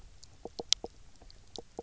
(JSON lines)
{"label": "biophony, knock croak", "recorder": "SoundTrap 300"}